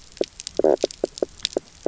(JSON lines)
{"label": "biophony, knock croak", "recorder": "SoundTrap 300"}